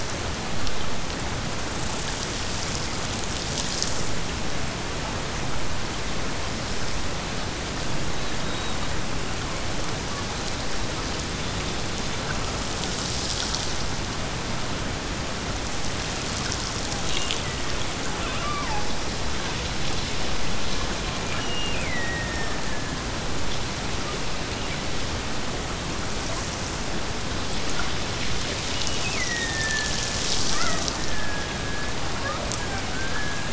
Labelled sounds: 17.1	17.9	killer whale, Bigg's (transient), Gulf of Alaska transient, 1.7 to 2.9 kHz
21.3	22.6	killer whale, Bigg's (transient), Gulf of Alaska transient, 1.5 to 3.1 kHz
28.7	33.5	killer whale, Bigg's (transient), Gulf of Alaska transient, 0.32 to 3.1 kHz

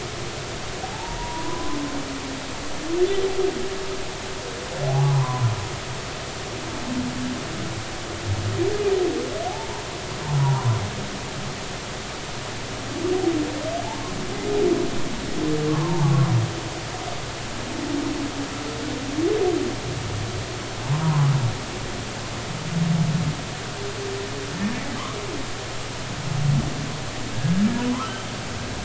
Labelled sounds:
0.8	1.8	humpback whale, 0.80 to 1.1 kHz
4.8	5.5	humpback whale, 0.80 to 1.2 kHz
9.5	9.8	humpback whale, 0.80 to 1.0 kHz
10.4	10.6	humpback whale, 0.80 to 1.2 kHz
15.7	16.3	humpback whale, 0.80 to 1.2 kHz
21.0	21.3	humpback whale, 0.86 to 1.2 kHz
27.3	27.6	humpback whale, 1.6 to 1.7 kHz
27.9	28.1	humpback whale, 0.93 to 1.4 kHz

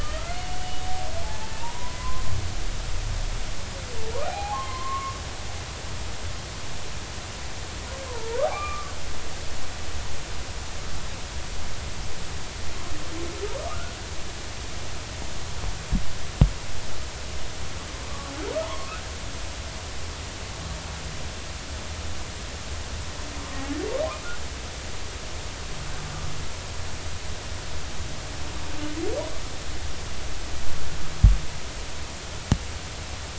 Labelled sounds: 0.0	0.6	humpback whale, 1.2 to 3.0 kHz
1.2	2.3	humpback whale, 0.80 to 1.1 kHz
4.2	5.2	humpback whale, 0.80 to 1.2 kHz
8.1	8.9	humpback whale, 0.86 to 2.5 kHz
13.7	14.0	humpback whale, 1.1 to 1.5 kHz
18.6	18.9	humpback whale, 0.86 to 1.2 kHz

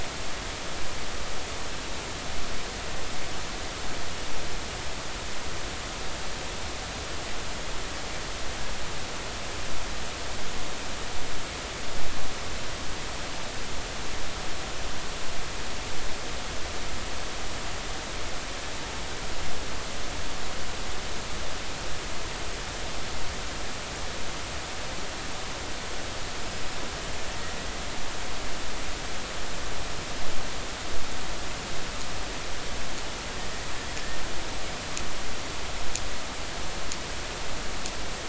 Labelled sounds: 26.4	26.7	killer whale, Bigg's (transient), 4.9 to 5.2 kHz

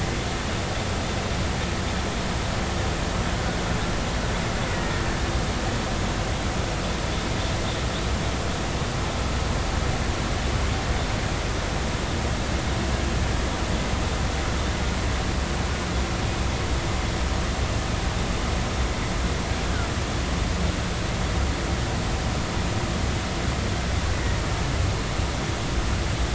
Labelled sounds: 4.7	5.0	killer whale, Bigg's (transient), 1.8 to 2.0 kHz
24.1	24.4	killer whale, Bigg's (transient), 1.8 to 2.0 kHz

